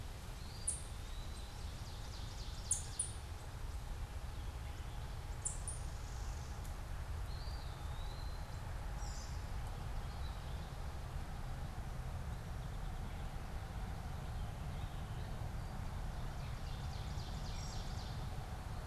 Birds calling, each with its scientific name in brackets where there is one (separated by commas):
Ovenbird (Seiurus aurocapilla), Warbling Vireo (Vireo gilvus), Eastern Wood-Pewee (Contopus virens), Song Sparrow (Melospiza melodia), American Robin (Turdus migratorius)